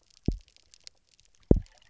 {"label": "biophony, double pulse", "recorder": "SoundTrap 300"}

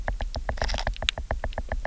{"label": "biophony, knock", "recorder": "SoundTrap 300"}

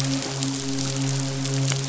{"label": "biophony, midshipman", "recorder": "SoundTrap 500"}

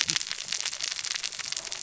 {"label": "biophony, cascading saw", "recorder": "SoundTrap 600 or HydroMoth"}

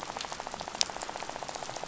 {"label": "biophony, rattle", "recorder": "SoundTrap 500"}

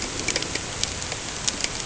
{"label": "ambient", "recorder": "HydroMoth"}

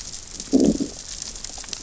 {"label": "biophony, growl", "recorder": "SoundTrap 600 or HydroMoth"}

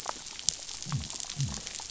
{"label": "biophony", "recorder": "SoundTrap 500"}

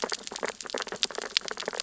{"label": "biophony, sea urchins (Echinidae)", "recorder": "SoundTrap 600 or HydroMoth"}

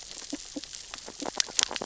{"label": "biophony, grazing", "recorder": "SoundTrap 600 or HydroMoth"}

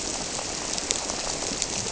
{"label": "biophony", "recorder": "SoundTrap 300"}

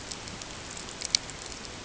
{"label": "ambient", "recorder": "HydroMoth"}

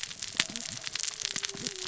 {"label": "biophony, cascading saw", "recorder": "SoundTrap 600 or HydroMoth"}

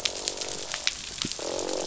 {"label": "biophony, croak", "recorder": "SoundTrap 500"}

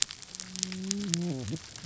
{"label": "biophony, whup", "recorder": "SoundTrap 300"}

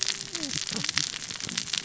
{"label": "biophony, cascading saw", "recorder": "SoundTrap 600 or HydroMoth"}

